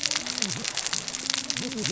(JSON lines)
{"label": "biophony, cascading saw", "recorder": "SoundTrap 600 or HydroMoth"}